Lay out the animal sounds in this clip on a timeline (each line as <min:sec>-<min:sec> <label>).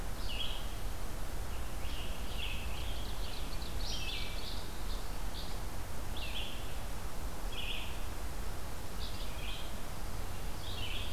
0:00.0-0:11.1 Red-eyed Vireo (Vireo olivaceus)
0:01.4-0:03.7 Scarlet Tanager (Piranga olivacea)
0:02.4-0:04.3 Ovenbird (Seiurus aurocapilla)